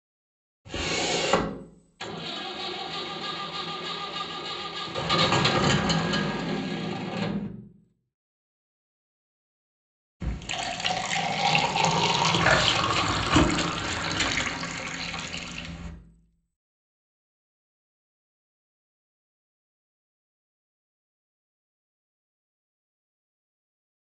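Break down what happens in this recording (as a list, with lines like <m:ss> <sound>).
0:01 wooden furniture moves
0:02 an engine can be heard
0:10 the sound of filling with liquid is audible
0:12 someone chews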